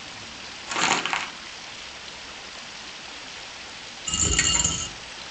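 At 0.66 seconds, crumpling is heard. Then at 4.06 seconds, a coin drops.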